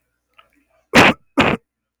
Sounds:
Cough